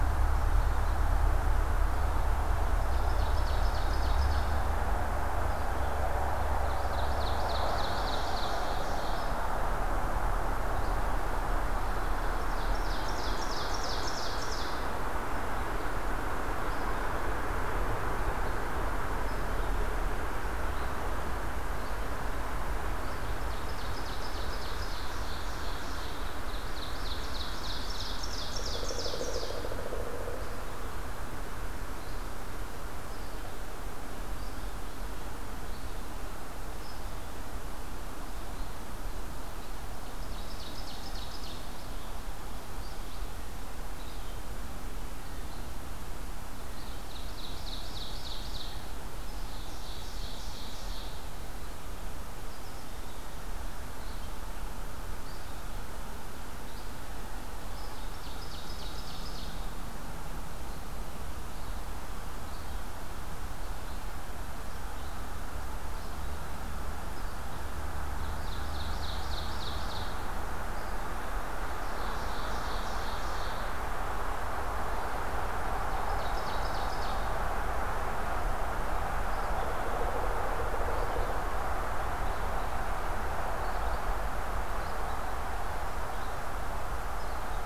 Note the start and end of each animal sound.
0.0s-53.1s: Red-eyed Vireo (Vireo olivaceus)
2.5s-4.7s: Ovenbird (Seiurus aurocapilla)
6.7s-9.4s: Ovenbird (Seiurus aurocapilla)
12.2s-14.9s: Ovenbird (Seiurus aurocapilla)
23.2s-29.7s: Ovenbird (Seiurus aurocapilla)
28.4s-30.3s: Pileated Woodpecker (Dryocopus pileatus)
40.0s-41.8s: Ovenbird (Seiurus aurocapilla)
46.5s-51.2s: Ovenbird (Seiurus aurocapilla)
53.7s-87.7s: Red-eyed Vireo (Vireo olivaceus)
57.7s-59.8s: Ovenbird (Seiurus aurocapilla)
68.2s-70.4s: Ovenbird (Seiurus aurocapilla)
71.5s-73.9s: Ovenbird (Seiurus aurocapilla)
76.0s-77.3s: Ovenbird (Seiurus aurocapilla)

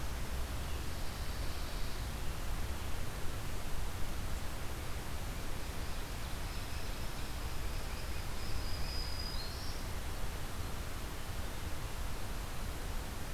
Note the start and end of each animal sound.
0.7s-2.1s: Pine Warbler (Setophaga pinus)
5.7s-8.7s: Ovenbird (Seiurus aurocapilla)
8.2s-9.9s: Black-throated Green Warbler (Setophaga virens)

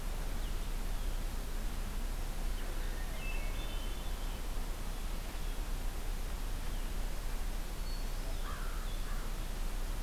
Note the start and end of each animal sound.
3.1s-4.4s: Hermit Thrush (Catharus guttatus)
7.8s-8.4s: Hermit Thrush (Catharus guttatus)
8.3s-9.4s: American Crow (Corvus brachyrhynchos)

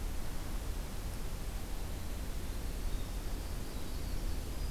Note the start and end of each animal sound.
1.4s-4.7s: Winter Wren (Troglodytes hiemalis)

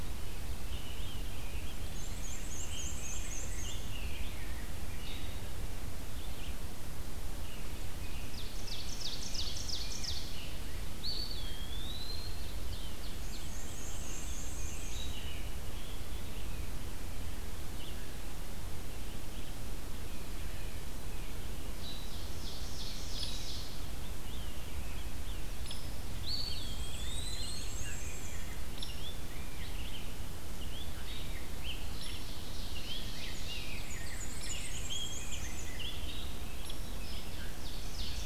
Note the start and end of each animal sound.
0.0s-8.4s: Red-eyed Vireo (Vireo olivaceus)
0.7s-5.2s: Rose-breasted Grosbeak (Pheucticus ludovicianus)
1.8s-4.1s: Black-and-white Warbler (Mniotilta varia)
8.0s-10.4s: Ovenbird (Seiurus aurocapilla)
9.2s-10.5s: Rose-breasted Grosbeak (Pheucticus ludovicianus)
10.8s-12.7s: Eastern Wood-Pewee (Contopus virens)
11.9s-13.5s: Ovenbird (Seiurus aurocapilla)
13.1s-15.4s: Black-and-white Warbler (Mniotilta varia)
13.6s-16.7s: Rose-breasted Grosbeak (Pheucticus ludovicianus)
22.0s-23.7s: Ovenbird (Seiurus aurocapilla)
23.9s-30.1s: Rose-breasted Grosbeak (Pheucticus ludovicianus)
26.1s-28.0s: Eastern Wood-Pewee (Contopus virens)
26.4s-28.6s: Black-and-white Warbler (Mniotilta varia)
30.6s-36.9s: Rose-breasted Grosbeak (Pheucticus ludovicianus)
31.5s-33.9s: Ovenbird (Seiurus aurocapilla)
33.7s-35.8s: Black-and-white Warbler (Mniotilta varia)
34.2s-38.3s: Red-eyed Vireo (Vireo olivaceus)
37.0s-38.3s: Ovenbird (Seiurus aurocapilla)

